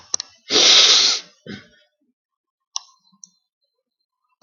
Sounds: Sniff